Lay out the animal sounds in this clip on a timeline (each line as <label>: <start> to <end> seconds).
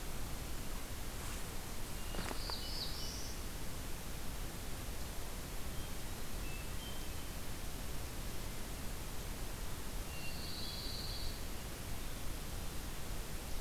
Hermit Thrush (Catharus guttatus): 1.9 to 3.5 seconds
Black-throated Blue Warbler (Setophaga caerulescens): 2.1 to 3.4 seconds
Hermit Thrush (Catharus guttatus): 6.3 to 7.4 seconds
Pine Warbler (Setophaga pinus): 10.0 to 11.5 seconds
Hermit Thrush (Catharus guttatus): 10.1 to 11.3 seconds